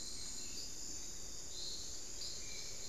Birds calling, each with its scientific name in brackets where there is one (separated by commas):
Hauxwell's Thrush (Turdus hauxwelli)